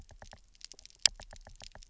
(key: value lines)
label: biophony, knock
recorder: SoundTrap 300